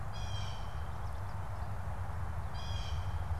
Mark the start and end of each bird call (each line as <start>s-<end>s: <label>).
0.0s-3.4s: Blue Jay (Cyanocitta cristata)